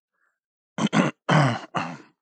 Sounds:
Throat clearing